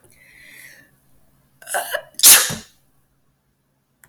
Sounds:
Sneeze